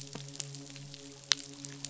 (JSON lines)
{"label": "biophony, midshipman", "recorder": "SoundTrap 500"}